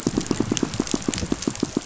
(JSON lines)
{"label": "biophony, pulse", "recorder": "SoundTrap 500"}